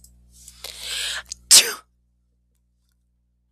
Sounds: Sneeze